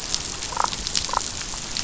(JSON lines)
{"label": "biophony, damselfish", "recorder": "SoundTrap 500"}